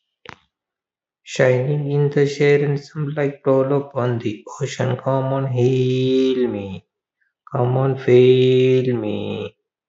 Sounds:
Sigh